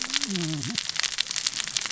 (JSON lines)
{"label": "biophony, cascading saw", "recorder": "SoundTrap 600 or HydroMoth"}